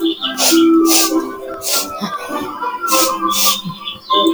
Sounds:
Sniff